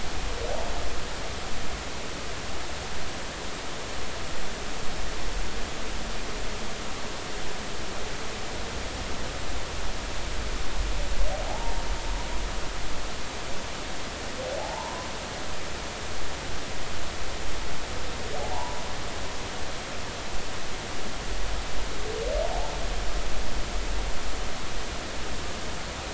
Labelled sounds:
11.4	11.7	humpback whale, 0.80 to 0.96 kHz
14.6	15.1	humpback whale, 0.80 to 1.1 kHz
18.5	18.8	humpback whale, 0.80 to 1.0 kHz

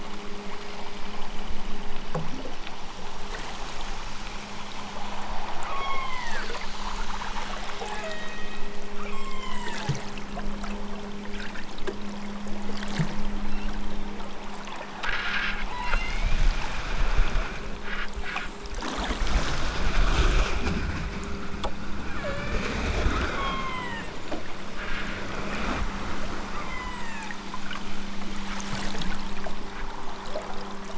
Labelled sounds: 5.7	6.5	killer whale, southern Alaska resident, 0.60 to 8.0 kHz
7.9	8.7	killer whale, southern Alaska resident, 0.88 to 6.8 kHz
9.0	9.9	killer whale, southern Alaska resident, 0.41 to 8.0 kHz
13.3	13.8	killer whale, southern Alaska resident, 2.2 to 5.6 kHz
15.7	16.3	killer whale, southern Alaska resident, 0.74 to 6.9 kHz
22.1	22.8	killer whale, southern Alaska resident, 0.51 to 3.2 kHz
23.2	24.2	killer whale, southern Alaska resident, 0.55 to 8.0 kHz
26.5	27.4	killer whale, southern Alaska resident, 0.55 to 8.0 kHz

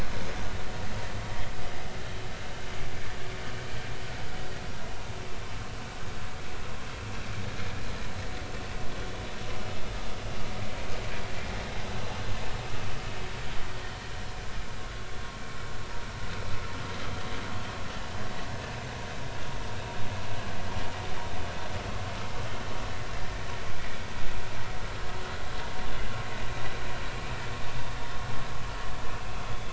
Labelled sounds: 23.2	23.4	vessel noise, 1.7 to 1.9 kHz
29.4	29.7	vessel noise, 3.3 to 3.5 kHz

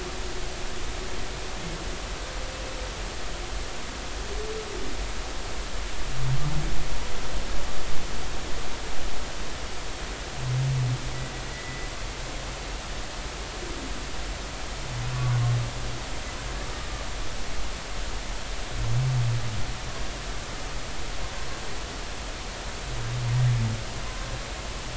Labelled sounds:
11.5	11.9	humpback whale, 1.8 to 2.0 kHz
15.1	15.5	humpback whale, 0.99 to 1.2 kHz

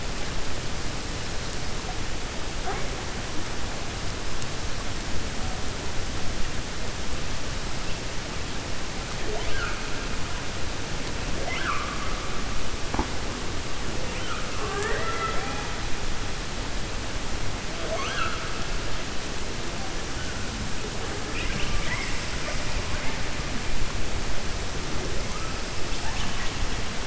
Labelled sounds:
11.3	12.1	killer whale, 0.49 to 3.4 kHz
21.2	22.2	killer whale, 0.98 to 5.4 kHz

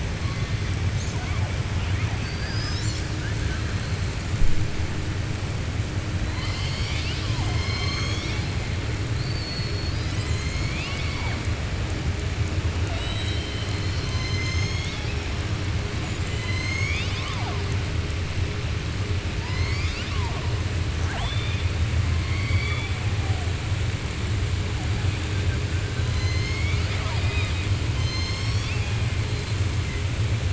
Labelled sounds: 1.7	2.8	killer whale, southern resident, 0.71 to 3.1 kHz
16.0	17.6	killer whale, southern resident, 0.74 to 7.7 kHz
21.0	21.7	killer whale, southern resident, 0.63 to 3.6 kHz
22.2	23.0	killer whale, southern resident, 0.90 to 4.6 kHz
26.0	29.0	killer whale, southern resident, 0.66 to 6.7 kHz

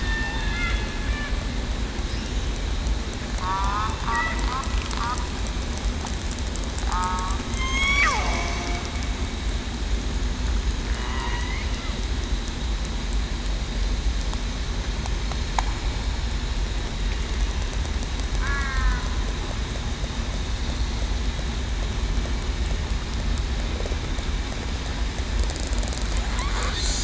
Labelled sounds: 0.3	0.7	killer whale, southern resident, 2.5 to 2.6 kHz
3.4	3.9	killer whale, southern resident, 0.89 to 1.5 kHz
6.9	8.7	killer whale, southern resident, 0.80 to 6.9 kHz
11.1	11.6	killer whale, southern resident, 1.9 to 2.2 kHz
18.4	19.0	killer whale, southern resident, 1.2 to 2.3 kHz

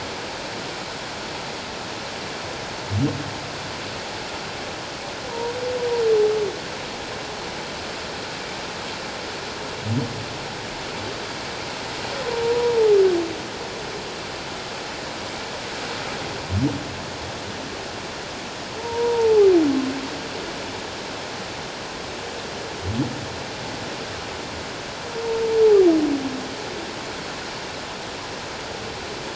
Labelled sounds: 5.3	5.5	humpback whale, 0.88 to 1.0 kHz
12.4	12.9	humpback whale, 0.78 to 1.0 kHz
18.8	19.5	humpback whale, 0.78 to 1.0 kHz

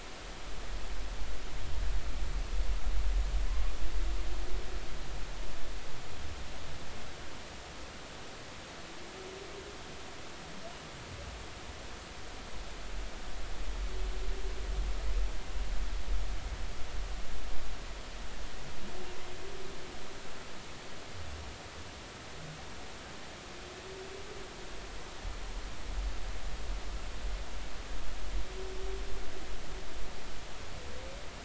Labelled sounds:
3.5	3.7	humpback whale, 0.99 to 1.2 kHz

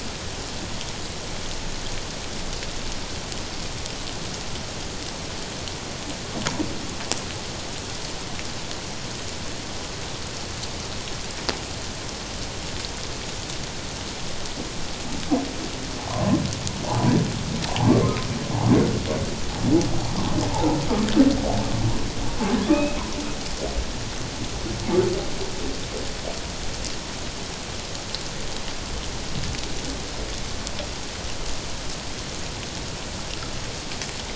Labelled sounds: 16.0	16.4	humpback whale, 0.78 to 1.2 kHz
17.9	18.2	humpback whale, 1.0 to 1.2 kHz
22.7	23.0	humpback whale, 2.3 to 2.7 kHz

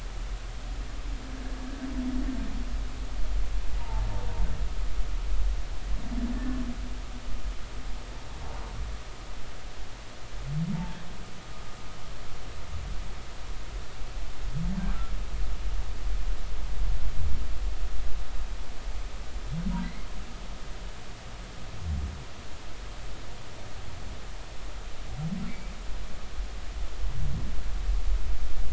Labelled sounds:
3.8	4.1	humpback whale, 0.83 to 0.99 kHz
6.3	6.6	humpback whale, 1.7 to 1.8 kHz
10.7	11.0	humpback whale, 0.83 to 0.93 kHz
19.8	20.1	humpback whale, 1.9 to 2.2 kHz
25.5	25.7	humpback whale, 2.0 to 2.5 kHz

